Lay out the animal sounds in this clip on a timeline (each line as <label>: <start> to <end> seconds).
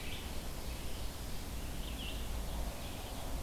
Veery (Catharus fuscescens): 0.0 to 0.5 seconds
Red-eyed Vireo (Vireo olivaceus): 0.0 to 3.4 seconds